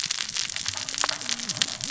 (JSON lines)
{"label": "biophony, cascading saw", "recorder": "SoundTrap 600 or HydroMoth"}